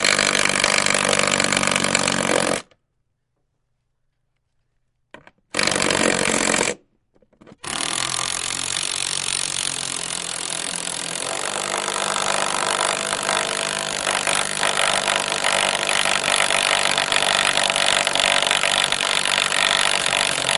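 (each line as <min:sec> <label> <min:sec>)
0:00.0 An impact driver is running. 0:02.6
0:05.5 An impact driver is running. 0:06.8
0:07.6 An impact driver is running. 0:20.6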